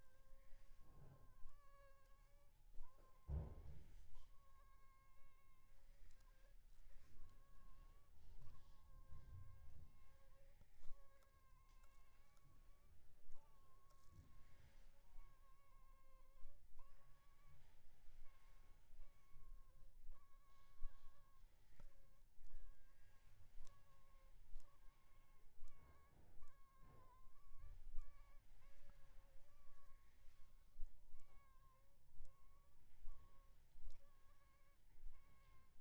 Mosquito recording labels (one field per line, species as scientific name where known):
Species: Anopheles funestus s.l.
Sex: female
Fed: unfed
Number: one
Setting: cup